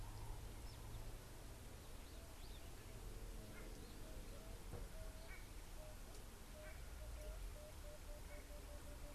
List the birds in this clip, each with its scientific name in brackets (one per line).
Emerald-spotted Wood-Dove (Turtur chalcospilos)